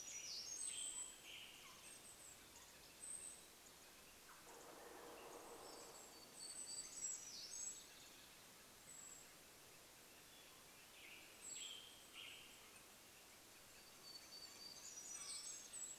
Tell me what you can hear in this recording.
Western Tanager song, warbler song, Golden-crowned Kinglet call, Canada Jay call, Pacific-slope Flycatcher call, woodpecker drumming